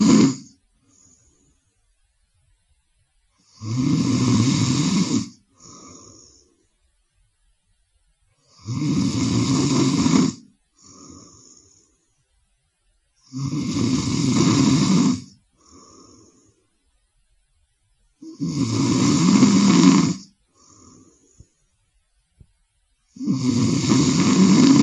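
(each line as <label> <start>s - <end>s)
Man snoring. 0.0s - 0.5s
Man snoring. 3.6s - 5.4s
Man snoring. 8.6s - 10.4s
Man snoring. 13.2s - 15.3s
Man snoring. 18.3s - 20.3s
Man snoring. 23.1s - 24.8s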